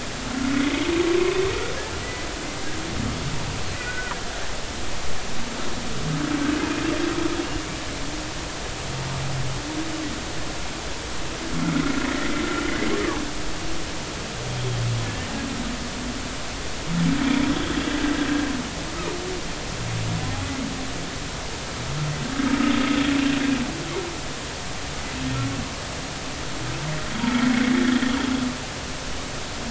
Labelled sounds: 0.5	0.8	humpback whale, 2.0 to 2.3 kHz
2.0	2.3	humpback whale, 1.9 to 2.1 kHz
3.8	4.1	humpback whale, 1.4 to 1.6 kHz
15.0	15.3	humpback whale, 1.7 to 1.9 kHz

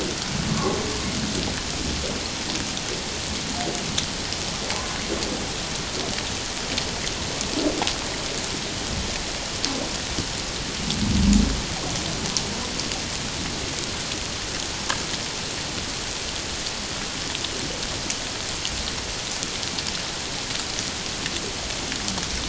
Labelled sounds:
0.5	0.8	humpback whale, 1.0 to 1.2 kHz

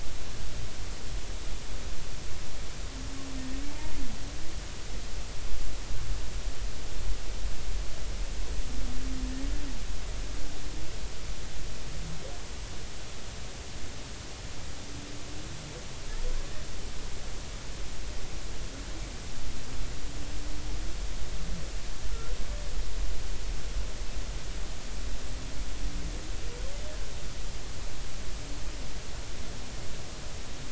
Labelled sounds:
22.1	22.4	humpback whale, 1.3 to 1.5 kHz

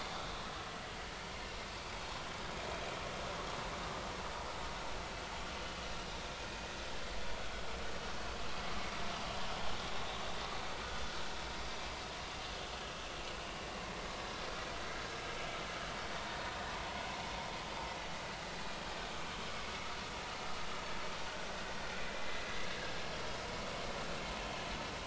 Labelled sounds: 1.8	2.0	vessel noise, 2.2 to 2.4 kHz
12.6	12.9	vessel noise, 2.9 to 3.1 kHz
22.2	22.5	vessel noise, 1.9 to 2.1 kHz
22.8	23.0	vessel noise, 1.5 to 1.8 kHz

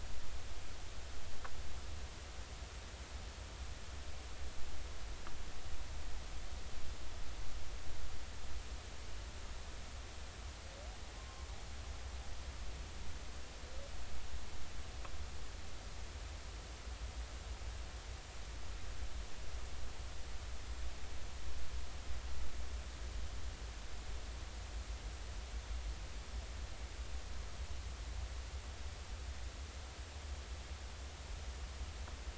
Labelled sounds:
11.2	11.5	humpback whale, 0.99 to 1.1 kHz

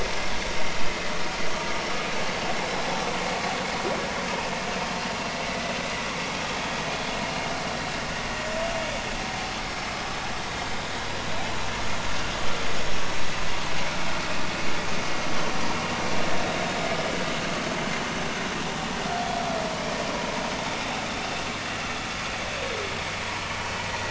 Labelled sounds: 5.5	5.7	humpback whale, 1.95 to 2.05 kHz

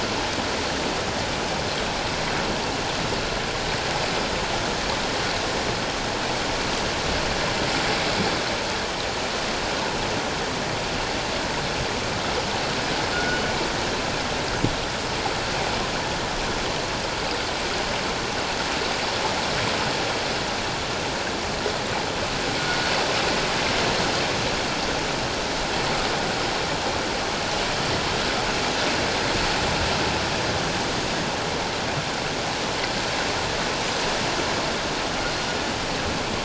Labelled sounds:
13.1	13.4	killer whale, northern resident, G clan, 1.3 to 1.6 kHz

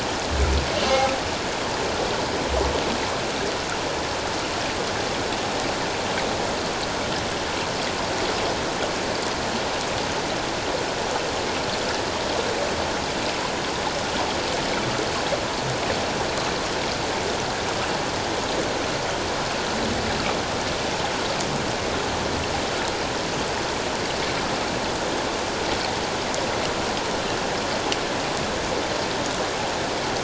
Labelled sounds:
0.7	1.0	humpback whale, 2.6 to 3.0 kHz

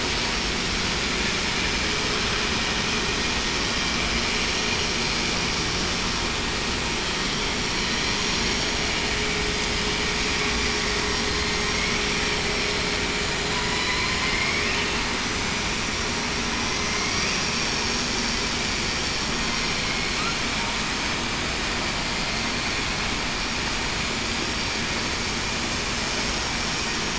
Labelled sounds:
13.5	13.8	killer whale, southern resident, 0.96 to 1.0 kHz
14.2	14.6	killer whale, southern resident, 2.1 to 2.3 kHz
16.9	17.2	killer whale, southern resident, 2.1 to 2.3 kHz

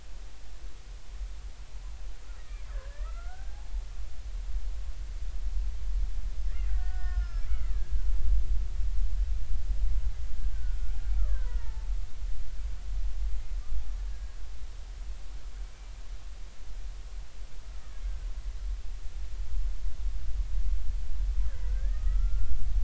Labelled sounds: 2.4	3.5	killer whale, Bigg's (transient), 1.1 to 2.1 kHz
6.4	7.7	killer whale, Bigg's (transient), 1.3 to 5.5 kHz
10.5	11.9	killer whale, Bigg's (transient), 0.83 to 2.0 kHz
14.1	14.4	killer whale, Bigg's (transient), 1.6 to 1.7 kHz
21.7	22.6	killer whale, Bigg's (transient), 1.2 to 1.9 kHz

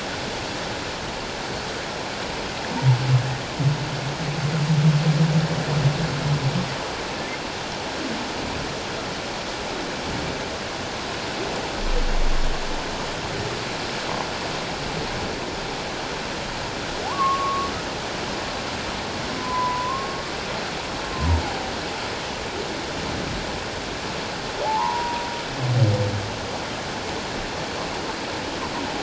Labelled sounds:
17.0	17.7	humpback whale, 0.78 to 1.2 kHz
19.4	20.2	humpback whale, 0.94 to 1.1 kHz
21.1	21.4	humpback whale, 0.88 to 1.1 kHz
24.6	25.3	humpback whale, 0.78 to 1.1 kHz

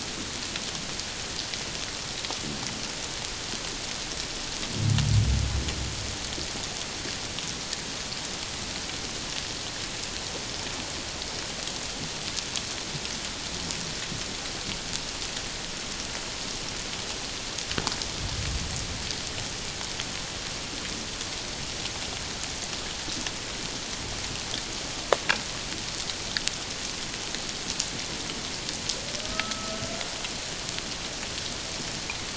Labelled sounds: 29.2	29.8	humpback whale, 1.2 to 1.4 kHz

